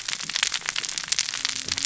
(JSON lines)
{"label": "biophony, cascading saw", "recorder": "SoundTrap 600 or HydroMoth"}